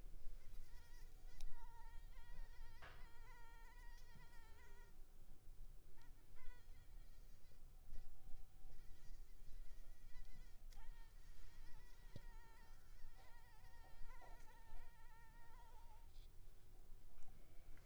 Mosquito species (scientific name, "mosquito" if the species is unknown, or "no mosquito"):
Anopheles arabiensis